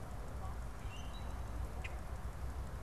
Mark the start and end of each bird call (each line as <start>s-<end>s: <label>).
0.6s-1.4s: Common Grackle (Quiscalus quiscula)
1.7s-2.0s: unidentified bird